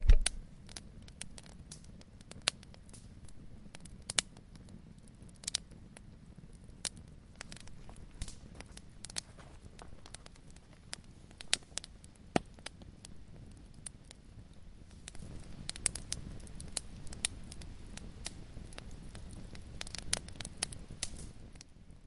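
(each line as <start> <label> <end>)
0.0 A campfire crackles continuously with occasional louder cracks. 22.1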